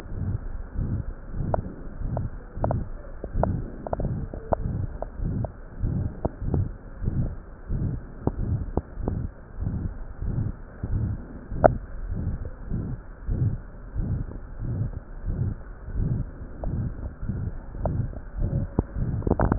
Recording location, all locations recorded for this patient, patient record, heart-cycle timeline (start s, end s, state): aortic valve (AV)
aortic valve (AV)+pulmonary valve (PV)+tricuspid valve (TV)+mitral valve (MV)
#Age: Adolescent
#Sex: Male
#Height: 153.0 cm
#Weight: 53.9 kg
#Pregnancy status: False
#Murmur: Present
#Murmur locations: aortic valve (AV)+mitral valve (MV)+pulmonary valve (PV)+tricuspid valve (TV)
#Most audible location: tricuspid valve (TV)
#Systolic murmur timing: Holosystolic
#Systolic murmur shape: Plateau
#Systolic murmur grading: III/VI or higher
#Systolic murmur pitch: High
#Systolic murmur quality: Harsh
#Diastolic murmur timing: nan
#Diastolic murmur shape: nan
#Diastolic murmur grading: nan
#Diastolic murmur pitch: nan
#Diastolic murmur quality: nan
#Outcome: Abnormal
#Campaign: 2015 screening campaign
0.00	0.10	diastole
0.10	0.21	S1
0.21	0.32	systole
0.32	0.40	S2
0.40	0.75	diastole
0.75	0.82	S1
0.82	0.97	systole
0.97	1.04	S2
1.04	1.34	diastole
1.34	1.46	S1
1.46	1.54	systole
1.54	1.66	S2
1.66	1.99	diastole
1.99	2.14	S1
2.14	2.22	systole
2.22	2.30	S2
2.30	2.56	diastole
2.56	2.65	S1
2.65	2.80	systole
2.80	2.87	S2
2.87	3.34	diastole
3.34	3.44	S1
3.44	3.59	systole
3.59	3.70	S2
3.70	3.96	diastole
3.96	4.10	S1
4.10	4.16	systole
4.16	4.30	S2
4.30	4.58	diastole
4.58	4.65	S1
4.65	4.80	systole
4.80	4.92	S2
4.92	5.20	diastole
5.20	5.29	S1
5.29	5.41	systole
5.41	5.48	S2
5.48	5.78	diastole
5.78	5.92	S1
5.92	6.02	systole
6.02	6.12	S2
6.12	6.40	diastole
6.40	6.51	S1
6.51	6.63	systole
6.63	6.71	S2
6.71	7.02	diastole
7.02	7.13	S1
7.13	7.27	systole
7.27	7.40	S2
7.40	7.66	diastole
7.66	7.77	S1
7.77	7.92	systole
7.92	8.04	S2
8.04	8.36	diastole
8.36	8.45	S1
8.45	8.58	systole
8.58	8.66	S2
8.66	8.97	diastole
8.97	9.10	S1
9.10	9.22	systole
9.22	9.32	S2
9.32	9.57	diastole
9.57	9.68	S1
9.68	9.83	systole
9.83	9.92	S2
9.92	10.20	diastole
10.20	10.32	S1
10.32	10.46	systole
10.46	10.53	S2
10.53	10.82	diastole
10.82	10.90	S1
10.90	11.10	systole
11.10	11.18	S2
11.18	11.48	diastole
11.48	11.58	S1
11.58	11.72	systole
11.72	11.79	S2
11.79	12.04	diastole
12.04	12.18	S1
12.18	12.30	systole
12.30	12.40	S2
12.40	12.69	diastole
12.69	12.81	S1
12.81	12.90	systole
12.90	13.02	S2
13.02	13.27	diastole
13.27	13.36	S1
13.36	13.51	systole
13.51	13.62	S2
13.62	13.94	diastole
13.94	14.07	S1
14.07	14.17	systole
14.17	14.28	S2
14.28	14.58	diastole
14.58	14.72	S1
14.72	14.80	systole
14.80	14.92	S2
14.92	15.24	diastole
15.24	15.36	S1
15.36	15.47	systole
15.47	15.58	S2
15.58	15.94	diastole
15.94	16.07	S1
16.07	16.17	systole
16.17	16.28	S2
16.28	16.62	diastole
16.62	16.73	S1
16.73	16.82	systole
16.82	16.93	S2
16.93	17.23	diastole
17.23	17.40	S1
17.40	17.46	systole
17.46	17.58	S2
17.58	17.75	diastole